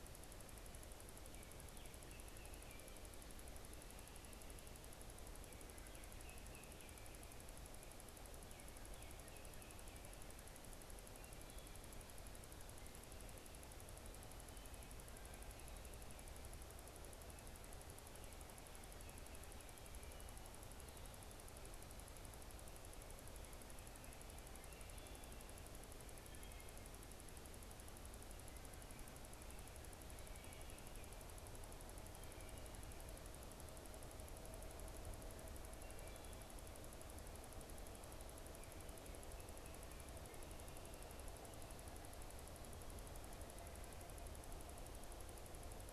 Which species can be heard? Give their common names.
Baltimore Oriole, Wood Thrush